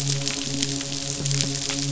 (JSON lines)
{"label": "biophony, midshipman", "recorder": "SoundTrap 500"}